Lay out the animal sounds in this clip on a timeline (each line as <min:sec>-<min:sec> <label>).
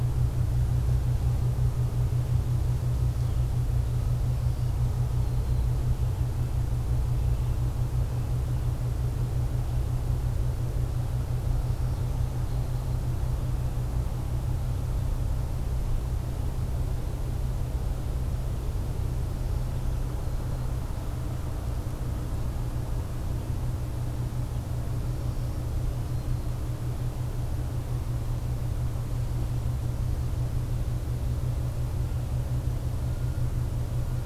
0:04.1-0:05.8 Black-throated Green Warbler (Setophaga virens)
0:07.2-0:08.7 Red-breasted Nuthatch (Sitta canadensis)
0:11.7-0:13.3 Black-throated Green Warbler (Setophaga virens)
0:24.4-0:26.8 Black-throated Green Warbler (Setophaga virens)